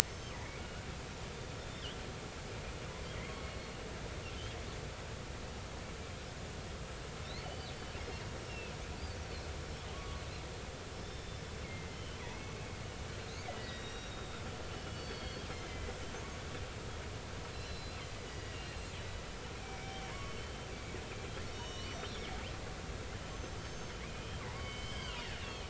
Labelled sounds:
0.0	0.4	killer whale, northern resident, 5.3 to 6.3 kHz
1.6	1.8	killer whale, northern resident, 7.8 to 8.0 kHz
3.3	3.8	killer whale, northern resident, 2.1 to 4.4 kHz
7.2	7.7	killer whale, northern resident, 2.9 to 4.8 kHz
8.5	8.7	killer whale, northern resident, 2.5 to 2.8 kHz
9.9	12.4	killer whale, northern resident, 0.83 to 5.5 kHz
13.2	16.0	killer whale, northern resident, 1.8 to 5.7 kHz
17.5	18.8	killer whale, northern resident, 1.9 to 4.2 kHz
19.5	20.6	killer whale, northern resident, 2.0 to 3.2 kHz
21.5	22.1	killer whale, northern resident, 0.90 to 6.5 kHz
23.3	23.9	killer whale, northern resident, 6.1 to 6.4 kHz
24.5	25.6	killer whale, northern resident, 1.3 to 4.7 kHz

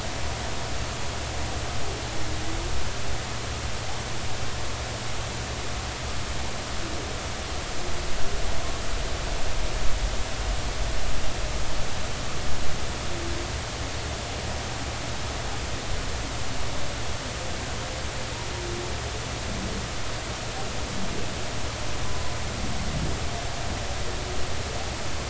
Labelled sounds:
22.0	22.3	humpback whale, 0.96 to 1.1 kHz

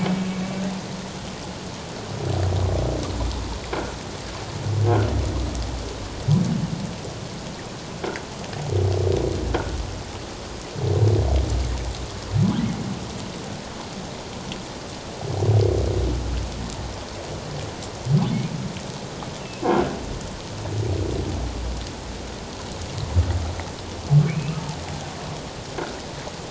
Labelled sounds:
4.8	5.1	humpback whale, 1.3 to 1.7 kHz
19.4	19.7	humpback whale, 2.5 to 2.8 kHz
24.3	24.6	humpback whale, 2.1 to 2.8 kHz

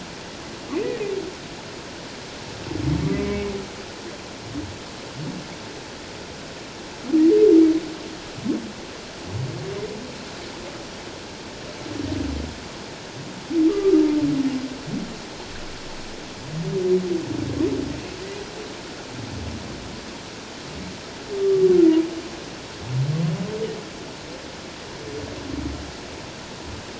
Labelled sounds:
3.0	3.5	humpback whale, 1.0 to 2.3 kHz
13.7	14.0	humpback whale, 1.1 to 1.3 kHz
21.4	21.7	humpback whale, 1.1 to 1.2 kHz

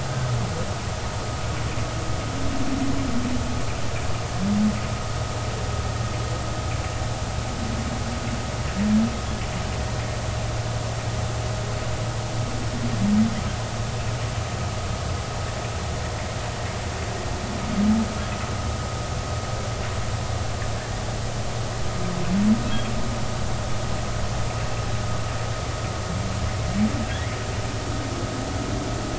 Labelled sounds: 27.1	27.3	humpback whale, 1.6 to 2.2 kHz

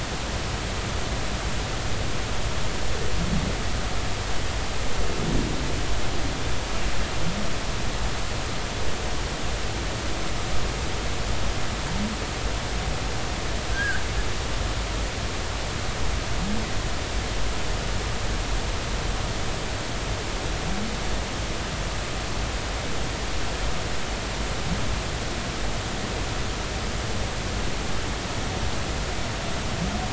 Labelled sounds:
13.7	14.0	humpback whale, 1.4 to 1.8 kHz

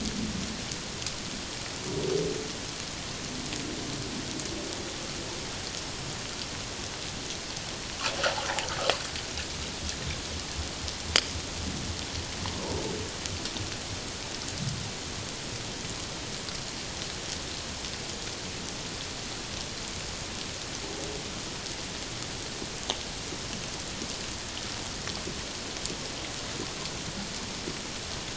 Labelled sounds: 12.5	12.8	humpback whale, 0.84 to 1.1 kHz

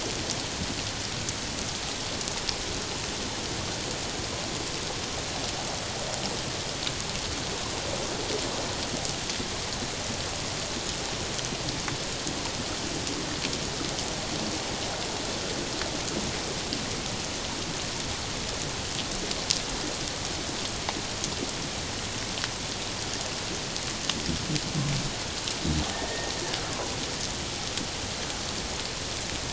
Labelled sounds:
26.1	26.3	killer whale, Bigg's (transient), 1.8 to 1.9 kHz

